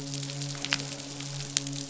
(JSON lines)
{"label": "biophony, midshipman", "recorder": "SoundTrap 500"}